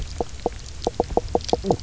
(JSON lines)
{"label": "biophony, knock croak", "recorder": "SoundTrap 300"}